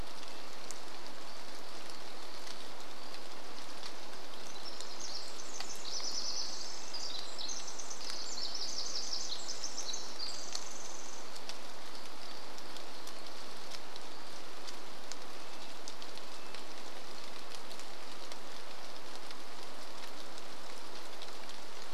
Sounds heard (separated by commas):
Pacific Wren song, warbler song, rain, Red-breasted Nuthatch song